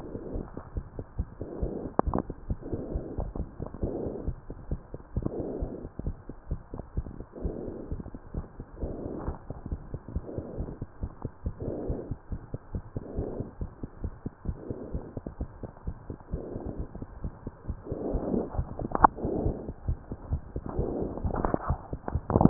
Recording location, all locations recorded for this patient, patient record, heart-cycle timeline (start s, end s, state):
mitral valve (MV)
aortic valve (AV)+pulmonary valve (PV)+tricuspid valve (TV)+mitral valve (MV)
#Age: Child
#Sex: Male
#Height: 92.0 cm
#Weight: 15.6 kg
#Pregnancy status: False
#Murmur: Absent
#Murmur locations: nan
#Most audible location: nan
#Systolic murmur timing: nan
#Systolic murmur shape: nan
#Systolic murmur grading: nan
#Systolic murmur pitch: nan
#Systolic murmur quality: nan
#Diastolic murmur timing: nan
#Diastolic murmur shape: nan
#Diastolic murmur grading: nan
#Diastolic murmur pitch: nan
#Diastolic murmur quality: nan
#Outcome: Abnormal
#Campaign: 2015 screening campaign
0.00	9.52	unannotated
9.52	9.72	diastole
9.72	9.78	S1
9.78	9.92	systole
9.92	9.99	S2
9.99	10.15	diastole
10.15	10.24	S1
10.24	10.38	systole
10.38	10.46	S2
10.46	10.58	diastole
10.58	10.70	S1
10.70	10.79	systole
10.79	10.88	S2
10.88	11.02	diastole
11.02	11.09	S1
11.09	11.24	systole
11.24	11.31	S2
11.31	11.46	diastole
11.46	11.54	S1
11.54	11.66	systole
11.66	11.76	S2
11.76	11.90	diastole
11.90	12.00	S1
12.00	12.10	systole
12.10	12.16	S2
12.16	12.32	diastole
12.32	12.41	S1
12.41	12.53	systole
12.53	12.58	S2
12.58	12.74	diastole
12.74	12.84	S1
12.84	12.95	systole
12.95	13.02	S2
13.02	13.16	diastole
13.16	13.28	S1
13.28	13.40	systole
13.40	13.48	S2
13.48	13.60	diastole
13.60	13.70	S1
13.70	13.82	systole
13.82	13.88	S2
13.88	14.04	diastole
14.04	14.12	S1
14.12	14.25	systole
14.25	14.34	S2
14.34	14.48	diastole
14.48	14.58	S1
14.58	14.70	systole
14.70	14.78	S2
14.78	14.94	diastole
14.94	15.04	S1
15.04	15.16	systole
15.16	15.23	S2
15.23	15.40	diastole
15.40	15.48	S1
15.48	15.62	systole
15.62	15.72	S2
15.72	15.88	diastole
15.88	15.96	S1
15.96	16.09	systole
16.09	16.16	S2
16.16	16.32	diastole
16.32	16.42	S1
16.42	16.54	systole
16.54	16.62	S2
16.62	16.78	diastole
16.78	16.86	S1
16.86	17.00	systole
17.00	17.08	S2
17.08	17.24	diastole
17.24	17.32	S1
17.32	17.44	systole
17.44	17.54	S2
17.54	17.69	diastole
17.69	22.50	unannotated